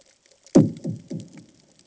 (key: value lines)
label: anthrophony, bomb
recorder: HydroMoth